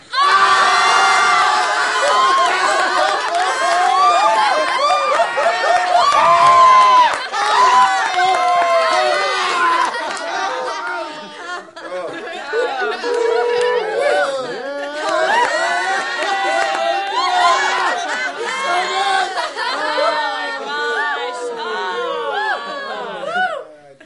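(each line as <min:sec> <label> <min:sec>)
0:00.0 A crowd cheers and laughs loudly with decreasing intensity. 0:24.1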